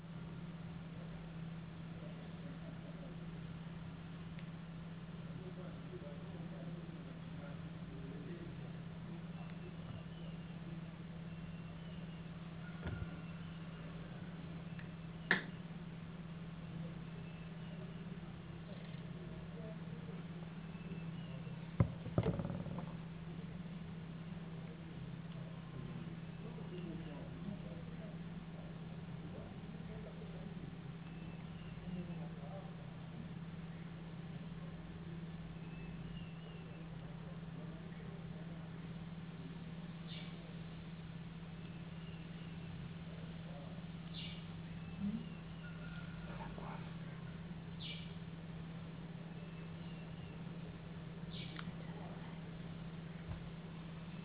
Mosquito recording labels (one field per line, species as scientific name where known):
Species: no mosquito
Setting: insect culture